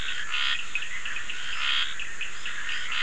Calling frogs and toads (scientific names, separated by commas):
Scinax perereca, Sphaenorhynchus surdus